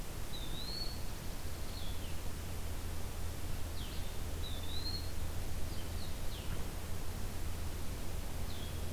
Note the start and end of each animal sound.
0.0s-8.9s: Blue-headed Vireo (Vireo solitarius)
0.3s-1.0s: Eastern Wood-Pewee (Contopus virens)
0.8s-1.7s: Dark-eyed Junco (Junco hyemalis)
4.3s-5.2s: Eastern Wood-Pewee (Contopus virens)

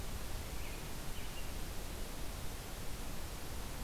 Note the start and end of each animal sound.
0.4s-1.7s: American Robin (Turdus migratorius)

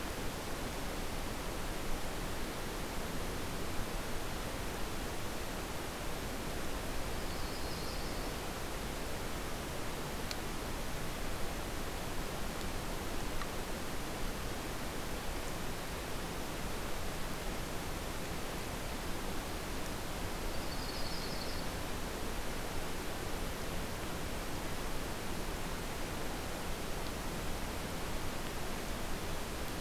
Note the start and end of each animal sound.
7.0s-8.4s: Yellow-rumped Warbler (Setophaga coronata)
20.4s-21.7s: Yellow-rumped Warbler (Setophaga coronata)

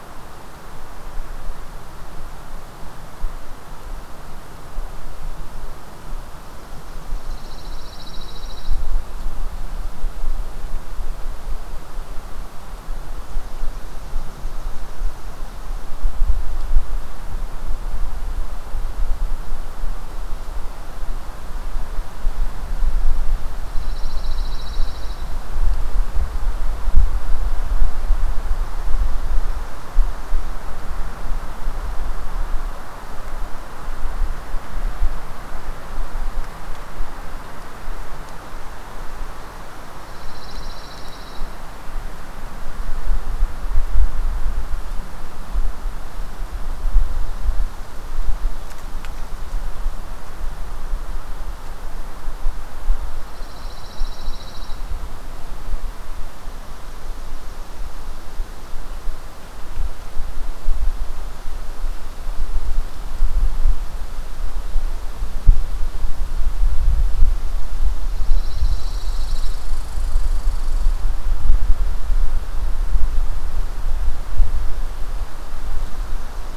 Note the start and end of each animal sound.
7.1s-9.3s: Pine Warbler (Setophaga pinus)
23.5s-25.5s: Pine Warbler (Setophaga pinus)
39.9s-41.6s: Pine Warbler (Setophaga pinus)
53.2s-54.9s: Pine Warbler (Setophaga pinus)
67.9s-69.7s: Pine Warbler (Setophaga pinus)
68.5s-71.0s: Red Squirrel (Tamiasciurus hudsonicus)

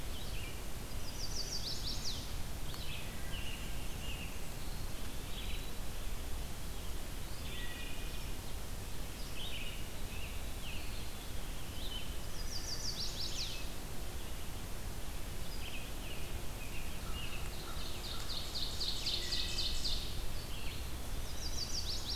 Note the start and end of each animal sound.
0.0s-22.2s: Red-eyed Vireo (Vireo olivaceus)
0.6s-2.3s: Chestnut-sided Warbler (Setophaga pensylvanica)
2.6s-4.5s: American Robin (Turdus migratorius)
3.2s-5.8s: Blackburnian Warbler (Setophaga fusca)
7.1s-8.3s: Wood Thrush (Hylocichla mustelina)
9.3s-10.9s: American Robin (Turdus migratorius)
10.6s-11.9s: Eastern Wood-Pewee (Contopus virens)
12.1s-13.9s: Chestnut-sided Warbler (Setophaga pensylvanica)
15.5s-17.5s: American Robin (Turdus migratorius)
17.3s-20.1s: Ovenbird (Seiurus aurocapilla)
19.0s-19.9s: Wood Thrush (Hylocichla mustelina)
20.7s-21.9s: Eastern Wood-Pewee (Contopus virens)
20.8s-22.2s: Chestnut-sided Warbler (Setophaga pensylvanica)

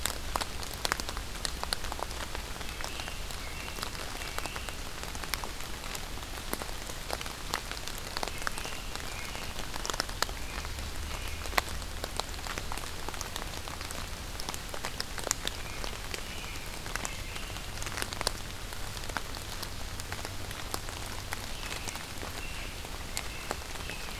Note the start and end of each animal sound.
2.8s-4.7s: American Robin (Turdus migratorius)
8.4s-11.6s: American Robin (Turdus migratorius)
15.5s-17.7s: American Robin (Turdus migratorius)
21.5s-24.1s: American Robin (Turdus migratorius)

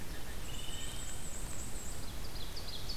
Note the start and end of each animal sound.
0.0s-1.2s: Wood Thrush (Hylocichla mustelina)
0.1s-2.1s: Black-and-white Warbler (Mniotilta varia)
1.9s-3.0s: Ovenbird (Seiurus aurocapilla)

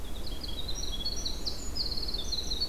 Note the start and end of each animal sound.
0.0s-2.7s: Winter Wren (Troglodytes hiemalis)

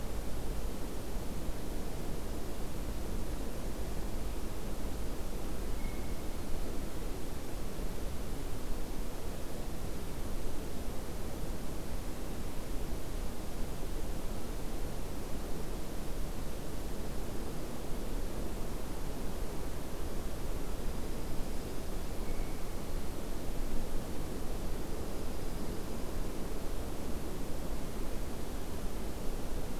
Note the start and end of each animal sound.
5.7s-6.3s: Blue Jay (Cyanocitta cristata)
20.5s-22.0s: Dark-eyed Junco (Junco hyemalis)
22.2s-22.8s: Blue Jay (Cyanocitta cristata)
24.8s-26.3s: Dark-eyed Junco (Junco hyemalis)

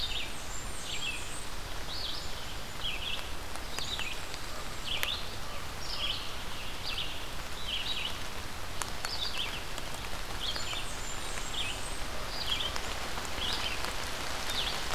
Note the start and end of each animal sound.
0.0s-1.5s: Blackburnian Warbler (Setophaga fusca)
0.0s-2.8s: Black-capped Chickadee (Poecile atricapillus)
0.0s-6.3s: Red-eyed Vireo (Vireo olivaceus)
3.5s-5.1s: Black-and-white Warbler (Mniotilta varia)
6.7s-14.9s: Red-eyed Vireo (Vireo olivaceus)
10.5s-12.2s: Blackburnian Warbler (Setophaga fusca)

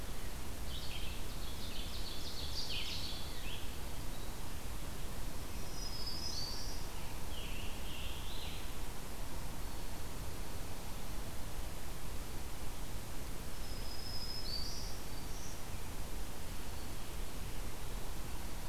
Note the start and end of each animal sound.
0.0s-3.8s: Red-eyed Vireo (Vireo olivaceus)
1.0s-3.5s: Ovenbird (Seiurus aurocapilla)
5.4s-6.8s: Black-throated Green Warbler (Setophaga virens)
6.9s-8.7s: Scarlet Tanager (Piranga olivacea)
13.4s-15.7s: Black-throated Green Warbler (Setophaga virens)

